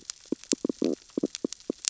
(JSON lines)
{"label": "biophony, stridulation", "recorder": "SoundTrap 600 or HydroMoth"}